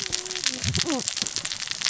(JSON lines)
{"label": "biophony, cascading saw", "recorder": "SoundTrap 600 or HydroMoth"}